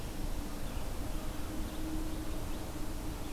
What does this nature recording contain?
Red-eyed Vireo